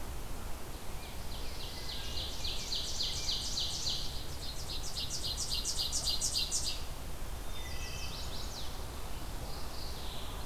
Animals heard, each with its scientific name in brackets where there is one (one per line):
Mourning Warbler (Geothlypis philadelphia)
Chestnut-sided Warbler (Setophaga pensylvanica)
Rose-breasted Grosbeak (Pheucticus ludovicianus)
Ovenbird (Seiurus aurocapilla)
Wood Thrush (Hylocichla mustelina)